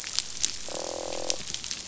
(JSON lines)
{"label": "biophony, croak", "recorder": "SoundTrap 500"}